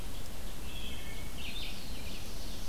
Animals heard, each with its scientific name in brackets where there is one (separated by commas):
Wood Thrush (Hylocichla mustelina), Red-eyed Vireo (Vireo olivaceus), Black-throated Blue Warbler (Setophaga caerulescens)